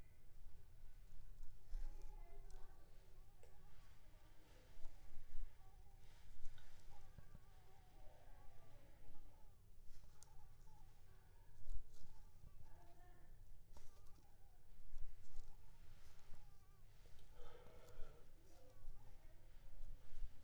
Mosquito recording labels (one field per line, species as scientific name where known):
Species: Anopheles squamosus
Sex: female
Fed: unfed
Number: one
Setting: cup